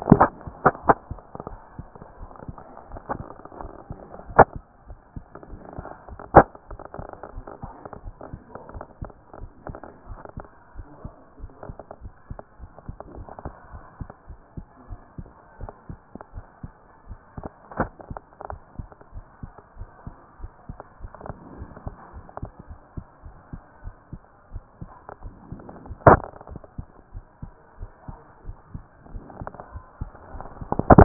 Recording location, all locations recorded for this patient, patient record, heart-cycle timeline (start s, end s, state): aortic valve (AV)
aortic valve (AV)+pulmonary valve (PV)+tricuspid valve (TV)+mitral valve (MV)
#Age: Child
#Sex: Female
#Height: 135.0 cm
#Weight: 34.3 kg
#Pregnancy status: False
#Murmur: Absent
#Murmur locations: nan
#Most audible location: nan
#Systolic murmur timing: nan
#Systolic murmur shape: nan
#Systolic murmur grading: nan
#Systolic murmur pitch: nan
#Systolic murmur quality: nan
#Diastolic murmur timing: nan
#Diastolic murmur shape: nan
#Diastolic murmur grading: nan
#Diastolic murmur pitch: nan
#Diastolic murmur quality: nan
#Outcome: Abnormal
#Campaign: 2014 screening campaign
0.00	6.98	unannotated
6.98	7.04	S2
7.04	7.34	diastole
7.34	7.46	S1
7.46	7.62	systole
7.62	7.72	S2
7.72	8.04	diastole
8.04	8.14	S1
8.14	8.32	systole
8.32	8.40	S2
8.40	8.74	diastole
8.74	8.84	S1
8.84	9.00	systole
9.00	9.12	S2
9.12	9.40	diastole
9.40	9.50	S1
9.50	9.68	systole
9.68	9.76	S2
9.76	10.08	diastole
10.08	10.20	S1
10.20	10.36	systole
10.36	10.46	S2
10.46	10.76	diastole
10.76	10.88	S1
10.88	11.04	systole
11.04	11.14	S2
11.14	11.40	diastole
11.40	11.52	S1
11.52	11.66	systole
11.66	11.76	S2
11.76	12.02	diastole
12.02	12.14	S1
12.14	12.30	systole
12.30	12.40	S2
12.40	12.60	diastole
12.60	12.72	S1
12.72	12.88	systole
12.88	12.96	S2
12.96	13.16	diastole
13.16	13.28	S1
13.28	13.44	systole
13.44	13.52	S2
13.52	13.72	diastole
13.72	13.84	S1
13.84	14.00	systole
14.00	14.10	S2
14.10	14.28	diastole
14.28	14.40	S1
14.40	14.56	systole
14.56	14.66	S2
14.66	14.90	diastole
14.90	15.00	S1
15.00	15.18	systole
15.18	15.28	S2
15.28	15.60	diastole
15.60	15.72	S1
15.72	15.88	systole
15.88	15.98	S2
15.98	16.34	diastole
16.34	16.46	S1
16.46	16.62	systole
16.62	16.72	S2
16.72	17.08	diastole
17.08	17.18	S1
17.18	17.38	systole
17.38	17.48	S2
17.48	17.78	diastole
17.78	17.92	S1
17.92	18.10	systole
18.10	18.20	S2
18.20	18.50	diastole
18.50	18.62	S1
18.62	18.78	systole
18.78	18.88	S2
18.88	19.14	diastole
19.14	19.26	S1
19.26	19.42	systole
19.42	19.52	S2
19.52	19.78	diastole
19.78	19.90	S1
19.90	20.06	systole
20.06	20.14	S2
20.14	20.42	diastole
20.42	20.52	S1
20.52	20.68	systole
20.68	20.78	S2
20.78	21.02	diastole
21.02	21.12	S1
21.12	21.26	systole
21.26	21.34	S2
21.34	21.58	diastole
21.58	21.70	S1
21.70	21.86	systole
21.86	21.94	S2
21.94	22.14	diastole
22.14	22.26	S1
22.26	22.42	systole
22.42	22.50	S2
22.50	22.70	diastole
22.70	22.80	S1
22.80	22.96	systole
22.96	23.06	S2
23.06	23.24	diastole
23.24	23.36	S1
23.36	31.04	unannotated